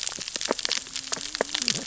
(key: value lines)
label: biophony, cascading saw
recorder: SoundTrap 600 or HydroMoth